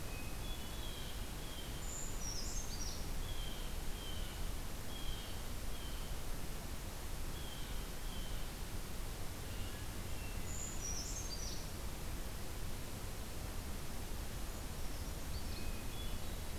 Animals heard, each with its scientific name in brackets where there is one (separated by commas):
Hermit Thrush (Catharus guttatus), Brown Creeper (Certhia americana), Blue Jay (Cyanocitta cristata)